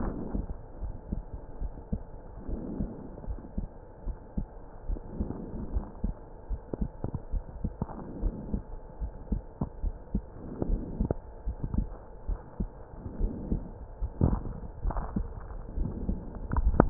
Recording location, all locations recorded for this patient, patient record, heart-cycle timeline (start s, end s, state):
pulmonary valve (PV)
aortic valve (AV)+pulmonary valve (PV)+tricuspid valve (TV)+mitral valve (MV)
#Age: Child
#Sex: Male
#Height: 133.0 cm
#Weight: 26.3 kg
#Pregnancy status: False
#Murmur: Absent
#Murmur locations: nan
#Most audible location: nan
#Systolic murmur timing: nan
#Systolic murmur shape: nan
#Systolic murmur grading: nan
#Systolic murmur pitch: nan
#Systolic murmur quality: nan
#Diastolic murmur timing: nan
#Diastolic murmur shape: nan
#Diastolic murmur grading: nan
#Diastolic murmur pitch: nan
#Diastolic murmur quality: nan
#Outcome: Abnormal
#Campaign: 2015 screening campaign
0.00	0.65	unannotated
0.65	0.80	diastole
0.80	0.94	S1
0.94	1.10	systole
1.10	1.24	S2
1.24	1.60	diastole
1.60	1.72	S1
1.72	1.88	systole
1.88	2.00	S2
2.00	2.46	diastole
2.46	2.60	S1
2.60	2.78	systole
2.78	2.90	S2
2.90	3.28	diastole
3.28	3.40	S1
3.40	3.56	systole
3.56	3.68	S2
3.68	4.06	diastole
4.06	4.16	S1
4.16	4.36	systole
4.36	4.46	S2
4.46	4.86	diastole
4.86	5.00	S1
5.00	5.18	systole
5.18	5.28	S2
5.28	5.70	diastole
5.70	5.84	S1
5.84	6.02	systole
6.02	6.14	S2
6.14	6.50	diastole
6.50	6.60	S1
6.60	6.80	systole
6.80	6.92	S2
6.92	7.32	diastole
7.32	7.44	S1
7.44	7.62	systole
7.62	7.72	S2
7.72	8.20	diastole
8.20	8.34	S1
8.34	8.52	systole
8.52	8.64	S2
8.64	9.02	diastole
9.02	9.12	S1
9.12	9.30	systole
9.30	9.44	S2
9.44	9.82	diastole
9.82	9.96	S1
9.96	10.12	systole
10.12	10.26	S2
10.26	10.66	diastole
10.66	10.82	S1
10.82	10.98	systole
10.98	11.08	S2
11.08	11.48	diastole
11.48	11.58	S1
11.58	11.72	systole
11.72	11.88	S2
11.88	12.26	diastole
12.26	12.38	S1
12.38	12.58	systole
12.58	12.70	S2
12.70	13.08	diastole
13.08	16.90	unannotated